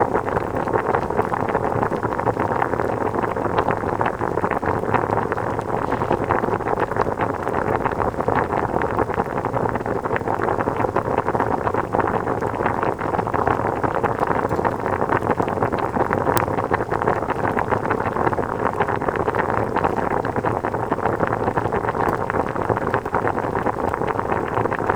Is anyone talking?
no